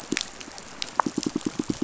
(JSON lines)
{"label": "biophony, pulse", "recorder": "SoundTrap 500"}